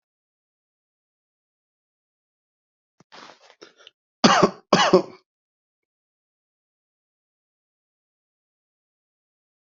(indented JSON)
{
  "expert_labels": [
    {
      "quality": "ok",
      "cough_type": "dry",
      "dyspnea": false,
      "wheezing": false,
      "stridor": false,
      "choking": false,
      "congestion": false,
      "nothing": true,
      "diagnosis": "lower respiratory tract infection",
      "severity": "mild"
    }
  ]
}